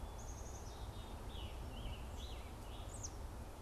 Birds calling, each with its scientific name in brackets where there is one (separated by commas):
Black-capped Chickadee (Poecile atricapillus), Scarlet Tanager (Piranga olivacea), American Robin (Turdus migratorius)